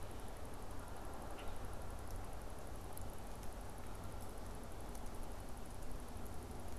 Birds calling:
Common Grackle (Quiscalus quiscula)

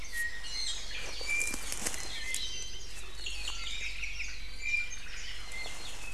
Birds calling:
Omao (Myadestes obscurus)
Iiwi (Drepanis coccinea)

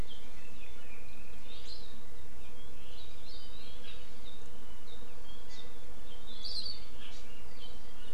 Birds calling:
Warbling White-eye (Zosterops japonicus)

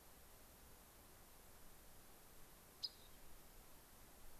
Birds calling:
Rock Wren (Salpinctes obsoletus)

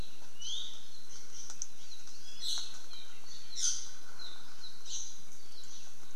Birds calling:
Apapane (Himatione sanguinea)
Iiwi (Drepanis coccinea)

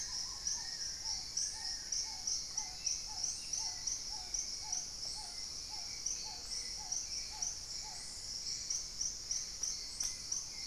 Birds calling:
Hauxwell's Thrush (Turdus hauxwelli)
Spot-winged Antshrike (Pygiptila stellaris)
Black-tailed Trogon (Trogon melanurus)
Long-billed Woodcreeper (Nasica longirostris)
Paradise Tanager (Tangara chilensis)

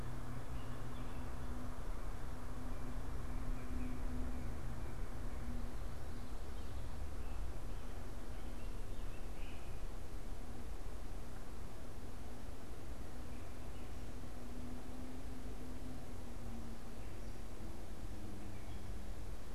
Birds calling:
Great Crested Flycatcher (Myiarchus crinitus)

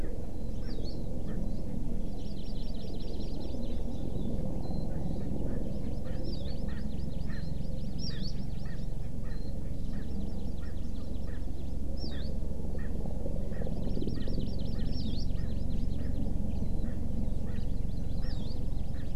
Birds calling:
Hawaii Amakihi (Chlorodrepanis virens)
Erckel's Francolin (Pternistis erckelii)
Warbling White-eye (Zosterops japonicus)

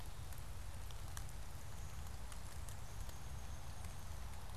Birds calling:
Downy Woodpecker (Dryobates pubescens)

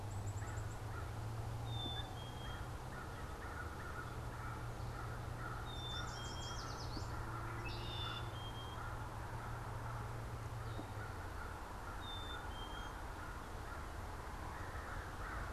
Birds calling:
Red-winged Blackbird (Agelaius phoeniceus)
Black-capped Chickadee (Poecile atricapillus)
American Crow (Corvus brachyrhynchos)
Yellow Warbler (Setophaga petechia)

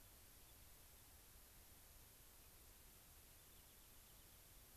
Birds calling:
Rock Wren (Salpinctes obsoletus)

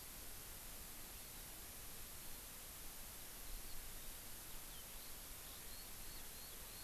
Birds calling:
Eurasian Skylark (Alauda arvensis)

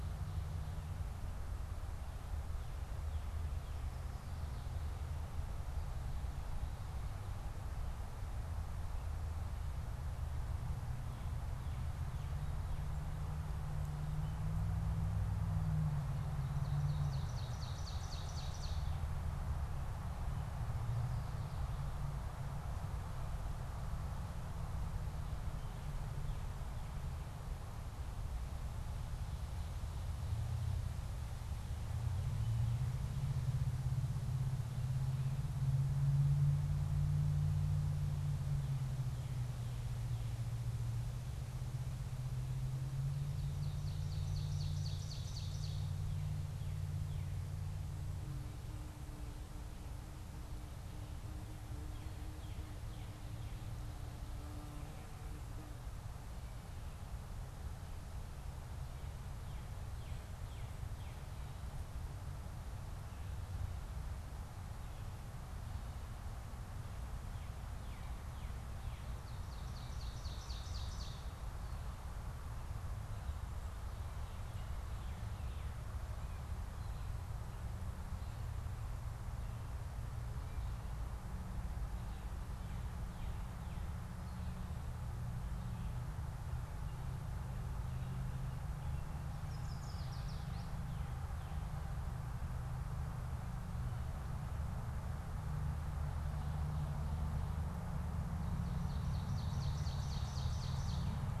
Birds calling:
Ovenbird (Seiurus aurocapilla)
Yellow Warbler (Setophaga petechia)
Northern Cardinal (Cardinalis cardinalis)

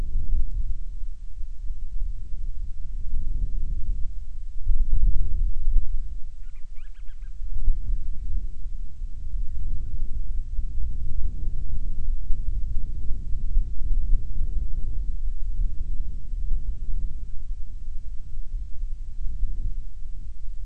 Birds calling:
Band-rumped Storm-Petrel (Hydrobates castro)

